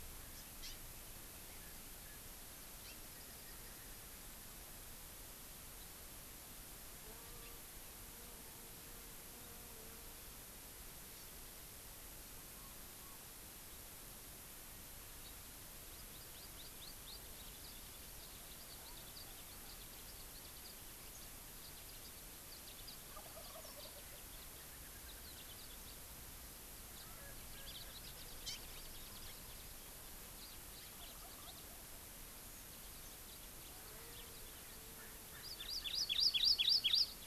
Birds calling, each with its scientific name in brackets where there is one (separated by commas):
House Finch (Haemorhous mexicanus), Wild Turkey (Meleagris gallopavo), Hawaii Amakihi (Chlorodrepanis virens)